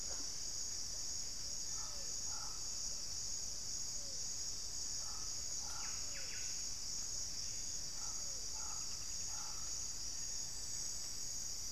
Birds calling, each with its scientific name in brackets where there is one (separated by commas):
Buff-breasted Wren (Cantorchilus leucotis), Pale-vented Pigeon (Patagioenas cayennensis), Pygmy Antwren (Myrmotherula brachyura), unidentified bird